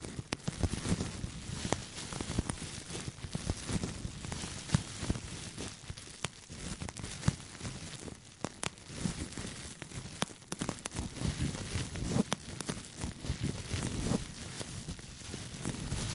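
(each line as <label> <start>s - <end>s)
Rustling of bubble wrap. 0.0s - 16.1s
Bubble wrap is popping. 0.3s - 0.4s
Bubble wrap is popping. 1.7s - 1.8s
Bubble wrap is popping. 4.7s - 4.8s
Bubble wrap is popping. 6.2s - 6.3s
Bubble wrap is popping. 7.3s - 7.3s
Bubble wrap is popping. 8.4s - 8.7s
Bubble wrap is popping. 10.2s - 10.9s
Bubble wrap is popping. 12.3s - 12.4s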